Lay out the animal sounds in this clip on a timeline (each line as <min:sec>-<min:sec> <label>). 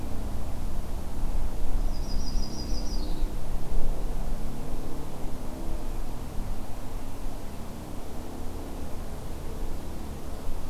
0:01.8-0:03.3 Yellow-rumped Warbler (Setophaga coronata)